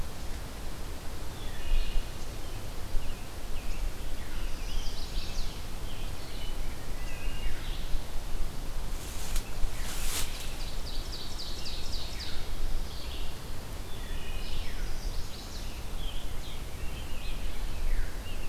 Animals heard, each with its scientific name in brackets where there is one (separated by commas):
American Robin (Turdus migratorius), Ovenbird (Seiurus aurocapilla), Chestnut-sided Warbler (Setophaga pensylvanica), Scarlet Tanager (Piranga olivacea), Wood Thrush (Hylocichla mustelina), Red-eyed Vireo (Vireo olivaceus)